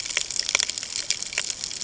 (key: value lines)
label: ambient
recorder: HydroMoth